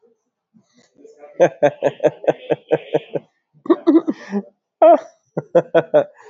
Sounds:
Laughter